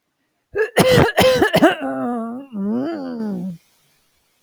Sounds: Throat clearing